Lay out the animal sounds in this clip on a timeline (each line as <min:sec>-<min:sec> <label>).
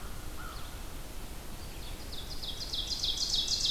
0:00.0-0:01.0 American Crow (Corvus brachyrhynchos)
0:00.0-0:03.7 Red-eyed Vireo (Vireo olivaceus)
0:01.2-0:03.7 Ovenbird (Seiurus aurocapilla)